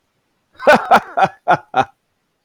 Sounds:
Laughter